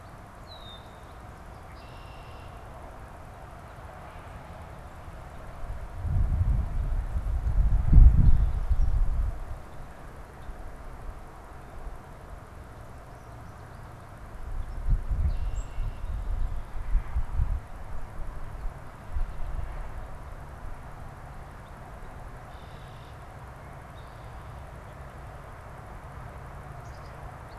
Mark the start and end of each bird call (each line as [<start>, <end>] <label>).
[0.29, 2.79] Red-winged Blackbird (Agelaius phoeniceus)
[14.99, 16.39] Red-winged Blackbird (Agelaius phoeniceus)
[15.39, 15.79] unidentified bird
[22.19, 23.29] Red-winged Blackbird (Agelaius phoeniceus)
[26.69, 27.39] Black-capped Chickadee (Poecile atricapillus)